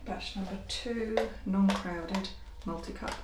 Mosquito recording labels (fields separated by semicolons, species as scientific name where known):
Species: Culex quinquefasciatus; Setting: cup